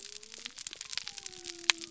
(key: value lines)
label: biophony
recorder: SoundTrap 300